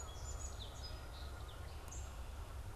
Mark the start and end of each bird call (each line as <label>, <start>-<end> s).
Song Sparrow (Melospiza melodia), 0.0-1.9 s
unidentified bird, 1.8-2.0 s